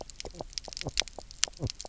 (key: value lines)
label: biophony, knock croak
recorder: SoundTrap 300